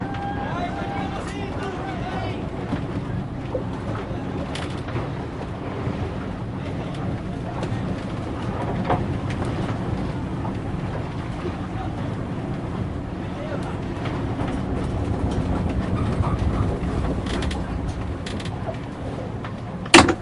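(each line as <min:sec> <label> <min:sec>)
0:00.0 Crew members talking and moving on a ship at sea. 0:20.2
0:00.0 Soft sea waves can be heard in the background. 0:20.2
0:14.2 The loose wood of a ship's hull creaks. 0:19.7
0:19.3 The sound of a door closing. 0:20.2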